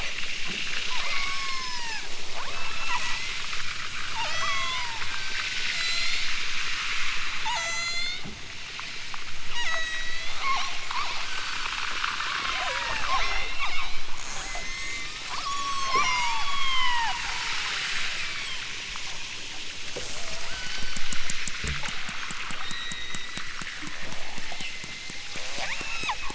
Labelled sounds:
0.9	3.5	killer whale, southern Alaska resident, 0.69 to 8.0 kHz
4.1	5.1	killer whale, southern Alaska resident, 0.50 to 8.0 kHz
5.6	6.3	killer whale, southern Alaska resident, 3.6 to 8.0 kHz
7.4	8.3	killer whale, southern Alaska resident, 0.32 to 8.0 kHz
9.4	14.1	killer whale, southern Alaska resident, 0.28 to 8.0 kHz
14.6	17.7	killer whale, southern Alaska resident, 0.41 to 8.0 kHz
18.1	18.7	killer whale, southern Alaska resident, 6.4 to 8.0 kHz
20.4	21.1	killer whale, southern Alaska resident, 1.1 to 8.0 kHz
22.6	23.5	killer whale, southern Alaska resident, 1.3 to 4.2 kHz
24.5	25.3	killer whale, southern Alaska resident, 1.8 to 5.6 kHz
25.5	26.2	killer whale, southern Alaska resident, 1.4 to 5.6 kHz

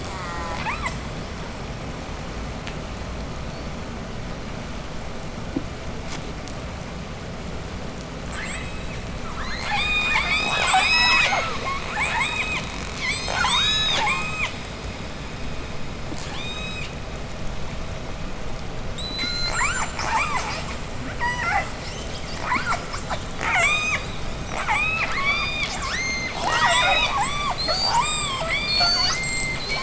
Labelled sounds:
0.0	0.7	killer whale, southern resident, J pod, call S04, 0.35 to 8.0 kHz
0.5	1.1	killer whale, southern resident, J pod, 0.36 to 8.0 kHz
8.1	14.6	killer whale, southern resident, J pod, 0.25 to 8.0 kHz
16.1	17.1	killer whale, southern resident, J pod, 0.75 to 8.0 kHz
18.8	20.7	killer whale, southern resident, J pod, 0.16 to 8.0 kHz
21.0	29.8	killer whale, southern resident, J pod, 0.29 to 8.0 kHz

